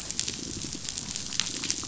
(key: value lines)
label: biophony
recorder: SoundTrap 500